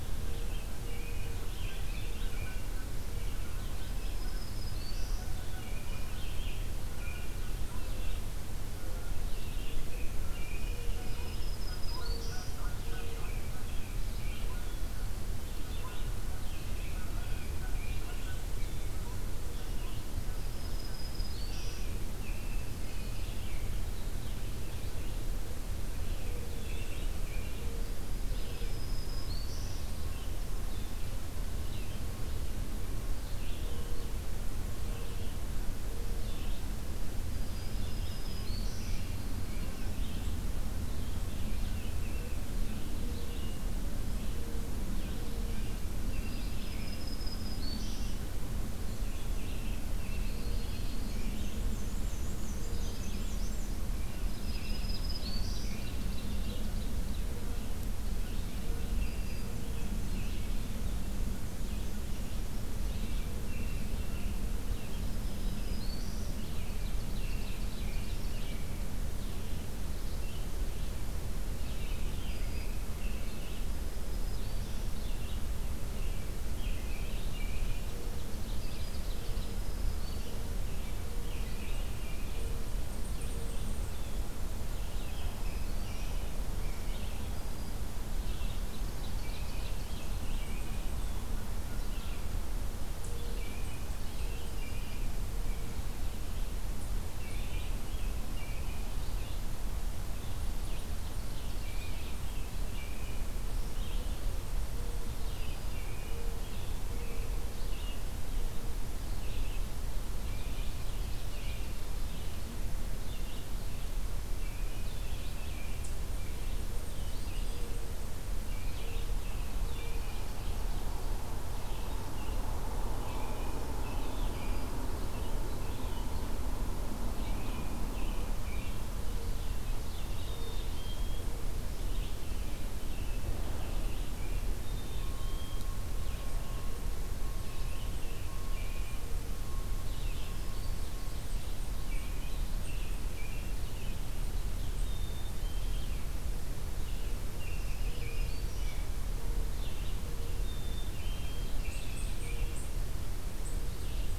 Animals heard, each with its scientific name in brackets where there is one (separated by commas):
Black-capped Chickadee (Poecile atricapillus), American Robin (Turdus migratorius), Red-eyed Vireo (Vireo olivaceus), Canada Goose (Branta canadensis), Black-and-white Warbler (Mniotilta varia), Black-throated Green Warbler (Setophaga virens), unidentified call, Yellow-rumped Warbler (Setophaga coronata), Ovenbird (Seiurus aurocapilla)